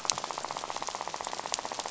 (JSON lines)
{"label": "biophony, rattle", "recorder": "SoundTrap 500"}